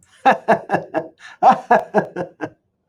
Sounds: Laughter